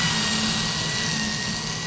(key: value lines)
label: anthrophony, boat engine
recorder: SoundTrap 500